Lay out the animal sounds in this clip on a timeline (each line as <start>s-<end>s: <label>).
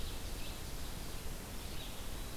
0.0s-1.0s: Ovenbird (Seiurus aurocapilla)
0.0s-2.4s: Red-eyed Vireo (Vireo olivaceus)